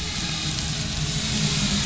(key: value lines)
label: anthrophony, boat engine
recorder: SoundTrap 500